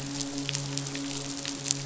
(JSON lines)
{"label": "biophony, midshipman", "recorder": "SoundTrap 500"}